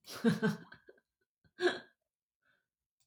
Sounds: Laughter